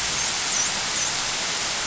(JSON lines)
{"label": "biophony, dolphin", "recorder": "SoundTrap 500"}